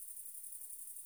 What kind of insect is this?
orthopteran